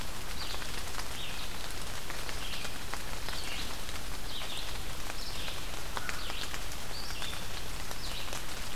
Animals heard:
Red-eyed Vireo (Vireo olivaceus), American Crow (Corvus brachyrhynchos)

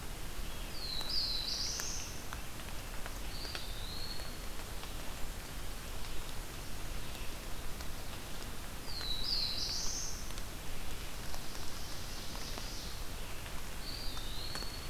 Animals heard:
Red-eyed Vireo (Vireo olivaceus), Eastern Wood-Pewee (Contopus virens), Ovenbird (Seiurus aurocapilla), Black-throated Blue Warbler (Setophaga caerulescens)

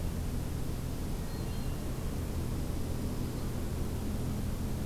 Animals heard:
Black-throated Green Warbler (Setophaga virens), Dark-eyed Junco (Junco hyemalis), Hermit Thrush (Catharus guttatus)

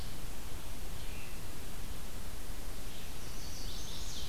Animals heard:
Red-eyed Vireo (Vireo olivaceus), Chestnut-sided Warbler (Setophaga pensylvanica)

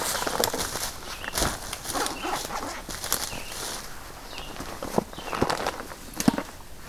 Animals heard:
Red-eyed Vireo (Vireo olivaceus)

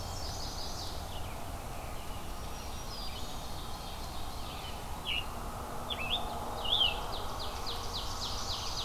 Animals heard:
Chestnut-sided Warbler (Setophaga pensylvanica), Black-throated Green Warbler (Setophaga virens), Ovenbird (Seiurus aurocapilla), Red-eyed Vireo (Vireo olivaceus), American Robin (Turdus migratorius), Scarlet Tanager (Piranga olivacea)

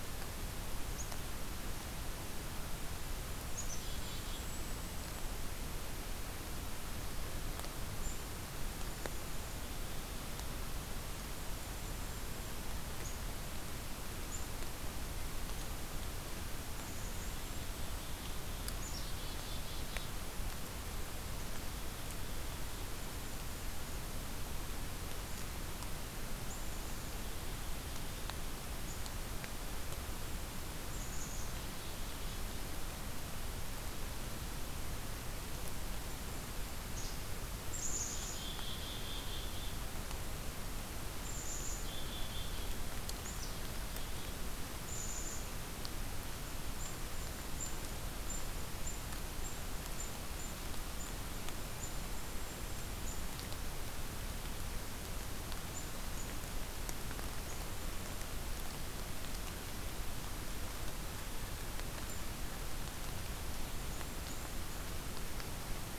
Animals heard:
Black-capped Chickadee (Poecile atricapillus), Golden-crowned Kinglet (Regulus satrapa)

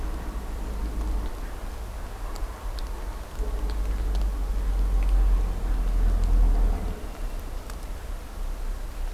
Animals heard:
Red-winged Blackbird (Agelaius phoeniceus)

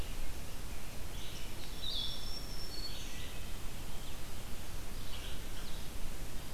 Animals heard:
Red-eyed Vireo (Vireo olivaceus), Black-throated Green Warbler (Setophaga virens)

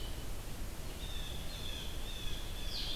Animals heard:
Blue-headed Vireo (Vireo solitarius), Blue Jay (Cyanocitta cristata)

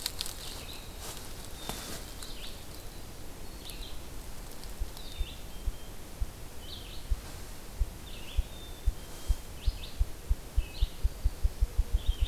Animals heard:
Black-capped Chickadee (Poecile atricapillus), Red-eyed Vireo (Vireo olivaceus)

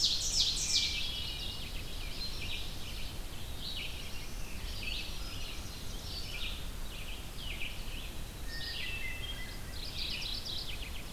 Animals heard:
American Crow (Corvus brachyrhynchos), Hermit Thrush (Catharus guttatus), Ovenbird (Seiurus aurocapilla), Black-throated Blue Warbler (Setophaga caerulescens), Red-eyed Vireo (Vireo olivaceus), Mourning Warbler (Geothlypis philadelphia)

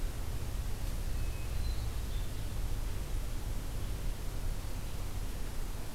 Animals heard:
Hermit Thrush (Catharus guttatus)

